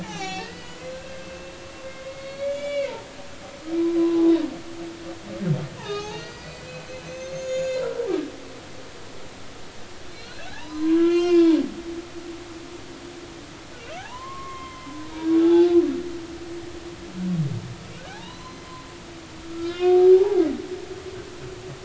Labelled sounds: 0.0	1.3	humpback whale, 0.80 to 7.2 kHz
2.2	4.3	humpback whale, 0.96 to 5.2 kHz
5.8	6.7	humpback whale, 0.80 to 6.6 kHz
7.1	8.8	humpback whale, 1.5 to 6.9 kHz
10.1	11.6	humpback whale, 0.80 to 6.4 kHz
14.0	15.8	humpback whale, 0.80 to 3.6 kHz
18.0	18.6	humpback whale, 0.80 to 4.2 kHz
19.5	20.4	humpback whale, 0.80 to 4.0 kHz

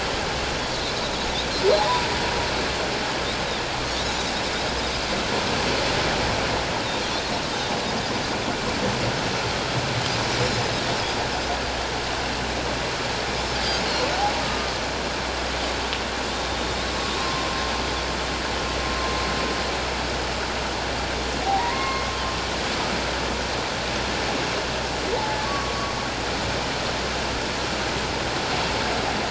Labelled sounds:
1.8	2.1	humpback whale, 0.88 to 1.1 kHz
14.4	14.7	humpback whale, 1.2 to 1.3 kHz
16.3	16.8	Pacific white-sided dolphin, 3.5 to 3.8 kHz
17.2	17.5	humpback whale, 1.0 to 1.1 kHz
21.6	22.1	humpback whale, 0.91 to 2.2 kHz
25.4	25.9	humpback whale, 1.1 to 1.2 kHz

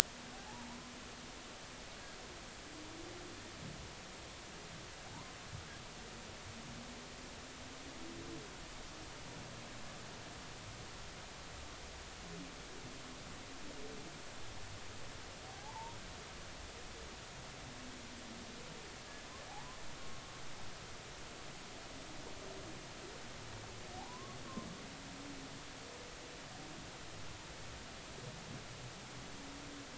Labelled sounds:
0.5	0.8	humpback whale, 0.80 to 1.0 kHz
5.0	5.4	humpback whale, 0.80 to 1.2 kHz
15.5	16.0	humpback whale, 0.80 to 1.1 kHz
19.5	19.8	humpback whale, 0.80 to 1.1 kHz
24.0	24.4	humpback whale, 0.80 to 1.2 kHz

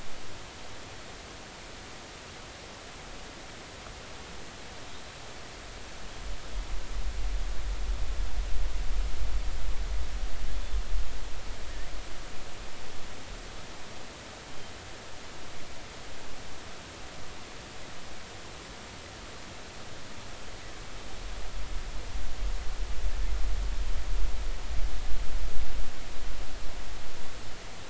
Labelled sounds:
10.5	10.8	killer whale, offshore, 3.4 to 3.6 kHz

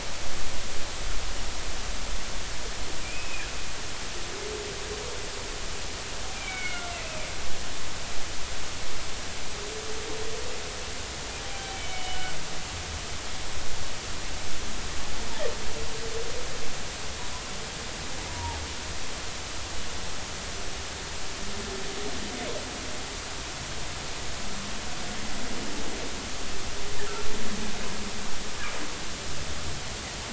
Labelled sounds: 3.0	3.5	humpback whale, 2.3 to 2.6 kHz
6.3	7.2	humpback whale, 1.3 to 3.0 kHz
11.4	12.3	humpback whale, 0.80 to 3.1 kHz
18.3	18.6	humpback whale, 0.80 to 0.99 kHz

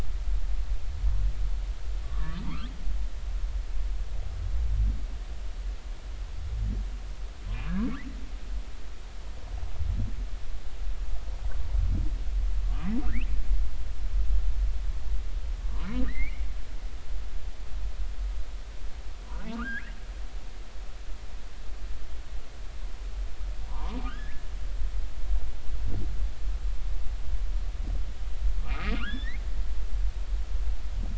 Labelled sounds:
2.0	2.7	humpback whale, 0.86 to 1.4 kHz
12.6	13.3	humpback whale, 0.99 to 3.1 kHz
16.0	16.4	humpback whale, 1.7 to 2.4 kHz
20.5	20.9	humpback whale, 1.1 to 2.2 kHz
23.7	24.4	humpback whale, 0.80 to 3.5 kHz
28.9	29.4	humpback whale, 1.0 to 3.6 kHz

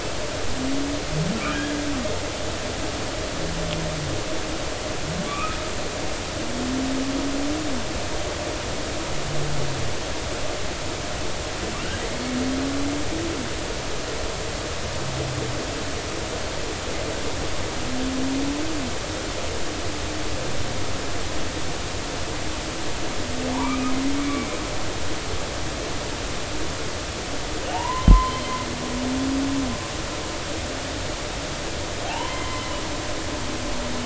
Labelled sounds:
5.3	5.6	humpback whale, 1.1 to 2.7 kHz
23.5	24.5	humpback whale, 0.80 to 2.6 kHz
27.7	28.4	humpback whale, 0.80 to 2.1 kHz
32.1	32.8	humpback whale, 0.80 to 3.2 kHz

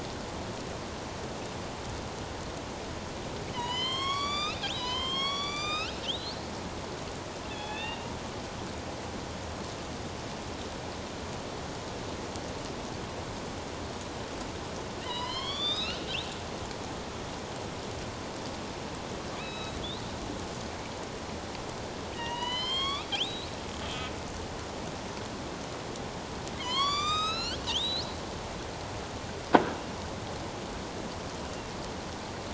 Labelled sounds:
3.5	6.4	killer whale, northern resident, A clan, AB subclan, 0.88 to 8.0 kHz
7.5	8.1	killer whale, northern resident, A clan, AB subclan, 1.7 to 3.8 kHz
15.0	16.0	killer whale, northern resident, A clan, AB subclan, 0.91 to 5.4 kHz
19.4	19.8	killer whale, northern resident, A clan, AB subclan, 2.3 to 6.5 kHz
22.1	23.6	killer whale, northern resident, A clan, AB subclan, 0.88 to 4.8 kHz
26.6	28.2	killer whale, northern resident, A clan, AB subclan, 0.94 to 8.0 kHz

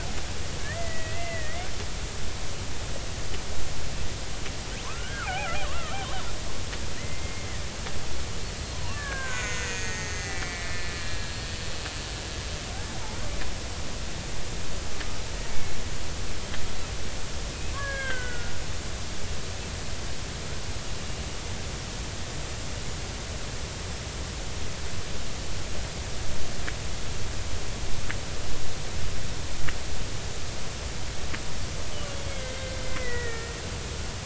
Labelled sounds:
0.6	1.7	killer whale, Bigg's (transient), 1.6 to 2.8 kHz
4.8	6.0	killer whale, Bigg's (transient), 0.80 to 2.6 kHz
7.0	7.5	killer whale, Bigg's (transient), 1.8 to 2.2 kHz
8.7	11.4	killer whale, Bigg's (transient), 0.90 to 6.8 kHz
15.5	15.8	killer whale, Bigg's (transient), 2.1 to 2.3 kHz
17.7	18.5	killer whale, Bigg's (transient), 1.0 to 3.3 kHz
21.0	21.2	killer whale, Bigg's (transient), 2.8 to 2.9 kHz
31.9	33.6	killer whale, Bigg's (transient), 1.3 to 3.0 kHz

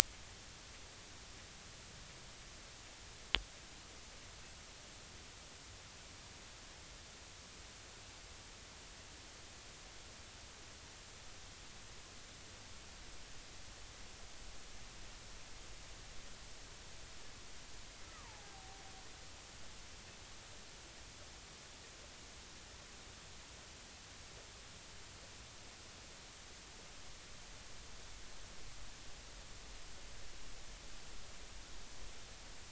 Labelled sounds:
18.0	18.5	killer whale, Bigg's (transient), 0.80 to 1.4 kHz

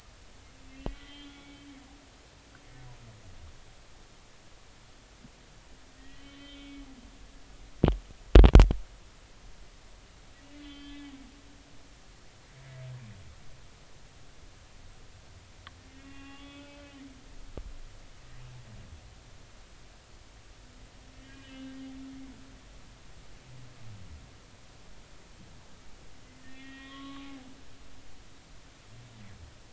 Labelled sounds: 1.3	1.7	humpback whale, 2.2 to 2.3 kHz
6.0	6.8	humpback whale, 1.8 to 3.5 kHz
10.6	11.2	humpback whale, 1.7 to 3.5 kHz
16.0	16.8	humpback whale, 1.1 to 3.5 kHz
21.2	21.8	humpback whale, 1.5 to 3.1 kHz
26.4	27.3	humpback whale, 1.0 to 3.3 kHz

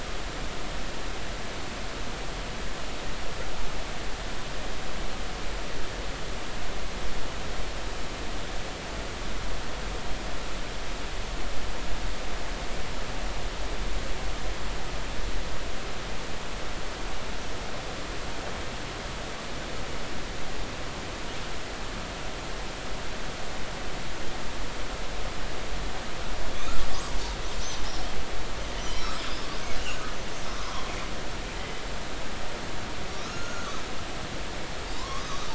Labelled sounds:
28.8	29.5	killer whale, northern resident, 2.9 to 5.4 kHz
33.2	33.8	killer whale, northern resident, 1.1 to 6.7 kHz
34.9	35.5	killer whale, northern resident, 0.86 to 6.0 kHz

